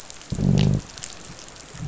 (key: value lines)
label: biophony, growl
recorder: SoundTrap 500